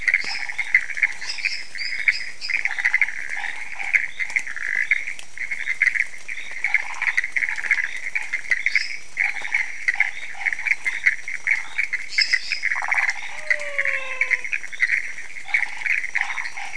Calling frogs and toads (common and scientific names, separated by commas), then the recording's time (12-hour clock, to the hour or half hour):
lesser tree frog (Dendropsophus minutus), Chaco tree frog (Boana raniceps), dwarf tree frog (Dendropsophus nanus), waxy monkey tree frog (Phyllomedusa sauvagii), menwig frog (Physalaemus albonotatus)
~2am